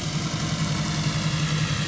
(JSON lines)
{"label": "anthrophony, boat engine", "recorder": "SoundTrap 500"}